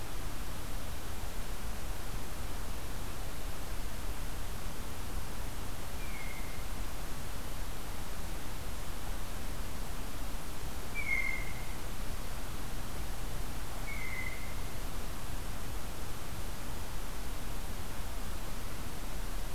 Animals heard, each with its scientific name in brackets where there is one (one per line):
Blue Jay (Cyanocitta cristata)